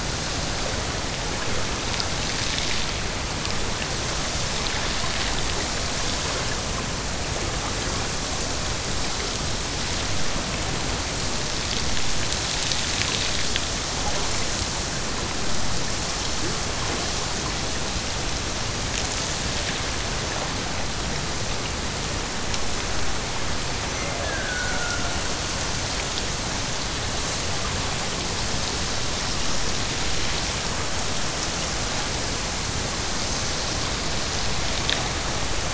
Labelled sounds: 23.9	25.3	killer whale, Bigg's (transient), Gulf of Alaska transient, 0.32 to 2.4 kHz

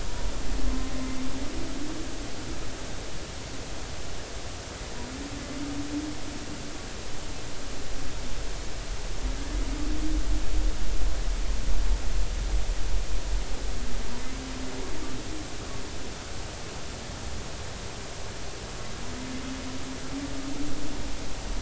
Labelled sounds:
0.6	0.9	humpback whale, 0.99 to 1.1 kHz

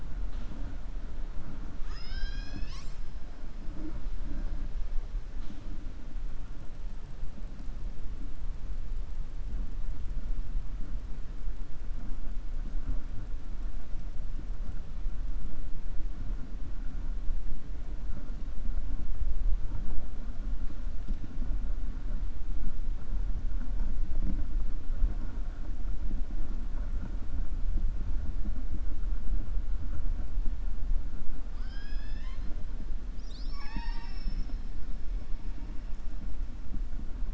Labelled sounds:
31.5	32.5	killer whale, 0.89 to 6.4 kHz
33.0	34.5	killer whale, 0.82 to 7.9 kHz

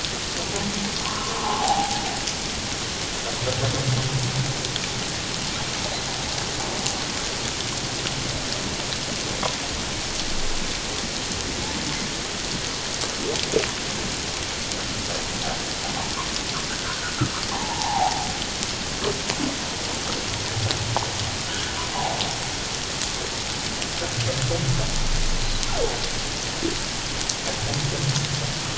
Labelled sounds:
1.1	2.0	humpback whale, 0.78 to 1.2 kHz
17.5	18.3	humpback whale, 0.78 to 1.1 kHz
21.5	21.7	humpback whale, 1.3 to 1.8 kHz

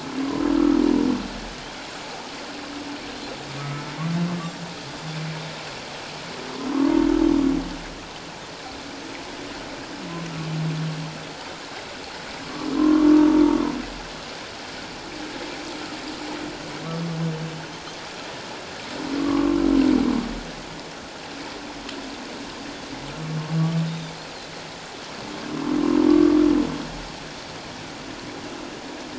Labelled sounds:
0.5	0.8	humpback whale, 1.2 to 1.4 kHz
3.6	3.9	humpback whale, 1.2 to 1.3 kHz
12.7	13.1	humpback whale, 0.97 to 1.2 kHz
19.2	19.6	humpback whale, 0.97 to 1.2 kHz
23.8	24.1	humpback whale, 3.5 to 3.8 kHz
26.1	26.4	humpback whale, 1.1 to 1.2 kHz

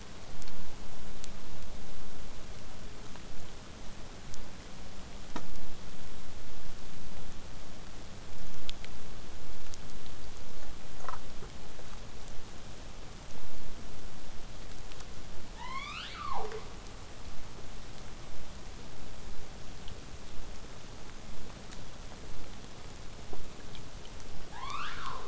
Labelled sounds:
10.3	15.3	vessel noise, 0 to 8.0 kHz
24.5	25.2	killer whale, southern resident, 0.58 to 6.2 kHz

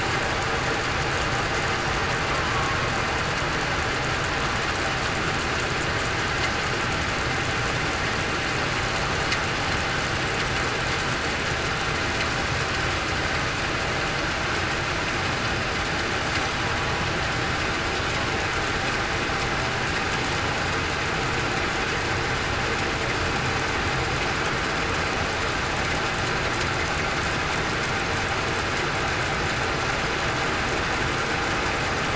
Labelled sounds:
2.5	2.8	killer whale, southern resident, 1.1 to 1.2 kHz

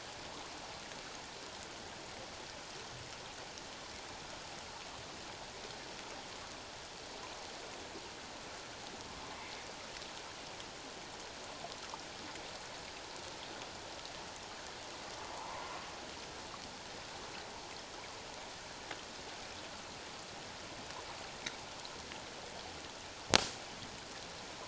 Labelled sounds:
15.3	15.7	humpback whale, 0.81 to 1.2 kHz

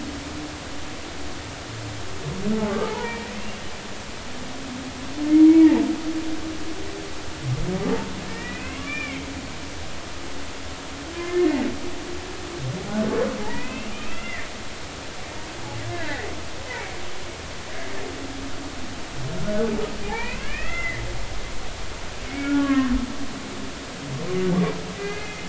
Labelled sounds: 2.7	3.3	humpback whale, 0.83 to 2.4 kHz
5.5	5.8	humpback whale, 2.0 to 2.3 kHz
8.3	9.3	humpback whale, 0.99 to 3.6 kHz
11.1	11.7	humpback whale, 1.7 to 2.2 kHz
13.4	14.5	humpback whale, 0.80 to 2.9 kHz
15.9	16.1	humpback whale, 1.4 to 1.8 kHz
19.4	21.0	humpback whale, 0.80 to 2.8 kHz
22.3	23.0	humpback whale, 0.99 to 2.3 kHz
24.9	25.4	humpback whale, 1.6 to 2.6 kHz

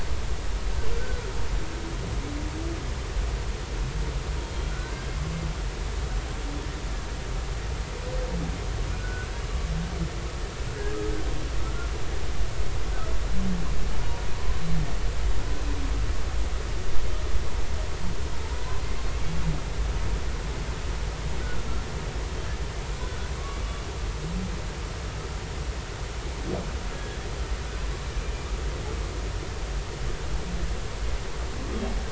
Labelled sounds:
1.0	1.3	humpback whale, 1.3 to 1.6 kHz
4.7	5.1	humpback whale, 1.3 to 1.6 kHz
8.9	9.3	humpback whale, 1.4 to 1.6 kHz
11.6	11.9	humpback whale, 1.3 to 1.5 kHz
14.4	14.6	humpback whale, 0.96 to 1.1 kHz
18.6	18.8	humpback whale, 0.96 to 1.1 kHz
22.9	23.6	humpback whale, 1.1 to 1.5 kHz
26.9	27.3	humpback whale, 1.6 to 1.9 kHz

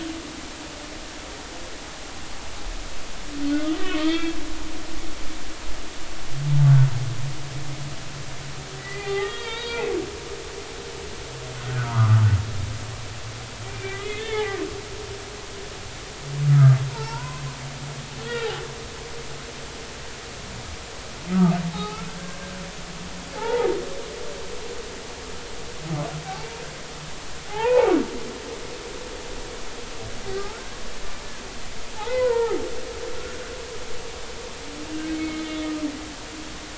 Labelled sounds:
3.7	4.4	humpback whale, 1.2 to 3.7 kHz
8.8	9.9	humpback whale, 0.80 to 4.8 kHz
11.6	12.3	humpback whale, 0.90 to 1.5 kHz
13.6	14.6	humpback whale, 0.80 to 3.7 kHz
16.5	17.4	humpback whale, 0.83 to 1.7 kHz
18.2	18.5	humpback whale, 1.7 to 2.0 kHz
21.7	22.1	humpback whale, 0.80 to 1.4 kHz
23.3	23.7	humpback whale, 0.80 to 2.1 kHz
27.5	27.9	humpback whale, 0.80 to 2.0 kHz
30.4	30.6	humpback whale, 1.2 to 1.5 kHz
32.0	32.6	humpback whale, 0.80 to 2.1 kHz
35.1	35.5	humpback whale, 2.1 to 2.3 kHz

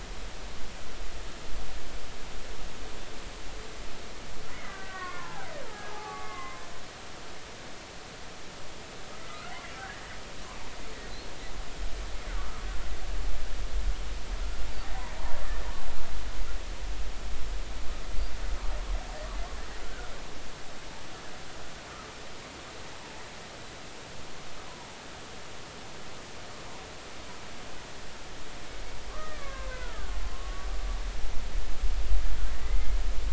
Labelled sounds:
4.5	6.6	killer whale, Bigg's (transient), 0.80 to 2.2 kHz
9.2	10.1	killer whale, Bigg's (transient), 1.2 to 2.0 kHz
29.1	30.7	killer whale, Bigg's (transient), 0.90 to 2.7 kHz

